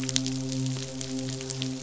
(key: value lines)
label: biophony, midshipman
recorder: SoundTrap 500